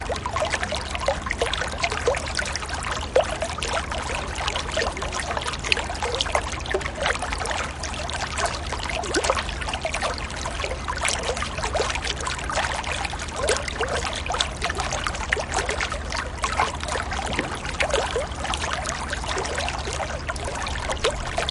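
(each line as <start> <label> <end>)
0.0 A gentle, rhythmic splashing of water. 21.5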